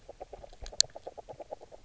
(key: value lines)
label: biophony, grazing
recorder: SoundTrap 300